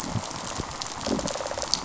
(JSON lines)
{"label": "biophony, rattle response", "recorder": "SoundTrap 500"}